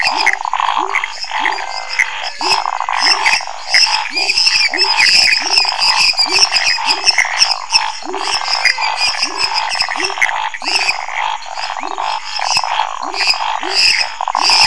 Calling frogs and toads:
Pithecopus azureus, lesser tree frog, pepper frog, waxy monkey tree frog, Scinax fuscovarius, menwig frog
10:15pm

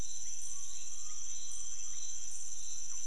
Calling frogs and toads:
rufous frog
3:00am

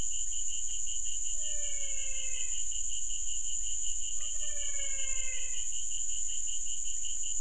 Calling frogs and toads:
menwig frog
7:15pm

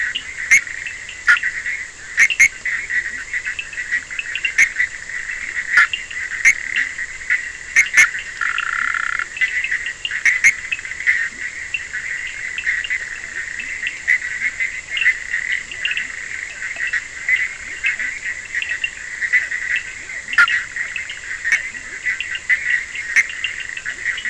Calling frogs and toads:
Bischoff's tree frog, Cochran's lime tree frog, Leptodactylus latrans, Physalaemus cuvieri
3:15am

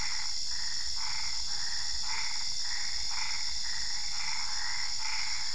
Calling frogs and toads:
Boana albopunctata
10:45pm

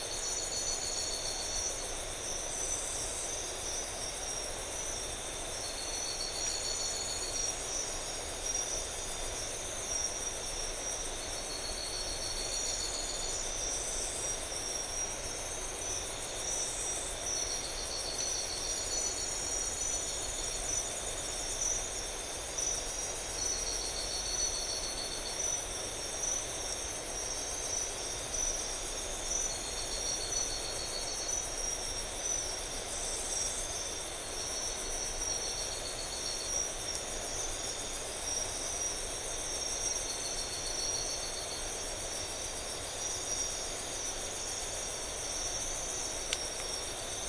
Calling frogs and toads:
none
9:00pm

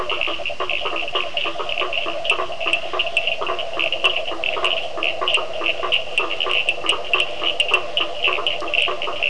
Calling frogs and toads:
blacksmith tree frog, Cochran's lime tree frog
7:15pm

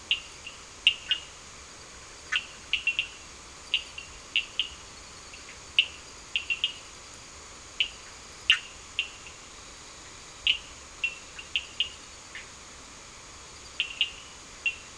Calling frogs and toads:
Cochran's lime tree frog, Bischoff's tree frog
7:45pm

